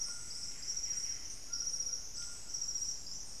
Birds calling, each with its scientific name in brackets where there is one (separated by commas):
White-throated Toucan (Ramphastos tucanus), Golden-crowned Spadebill (Platyrinchus coronatus), Buff-breasted Wren (Cantorchilus leucotis), Plumbeous Antbird (Myrmelastes hyperythrus)